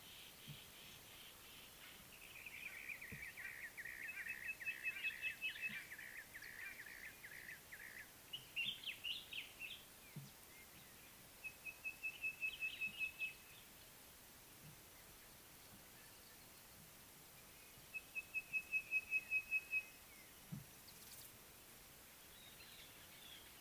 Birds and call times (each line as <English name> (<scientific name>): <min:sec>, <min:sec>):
Brown-crowned Tchagra (Tchagra australis): 0:03.4
Sulphur-breasted Bushshrike (Telophorus sulfureopectus): 0:04.9, 0:12.2
Common Bulbul (Pycnonotus barbatus): 0:09.1